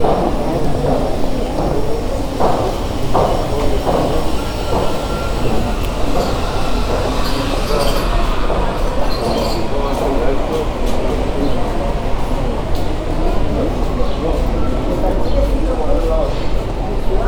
Can people be heard talking?
yes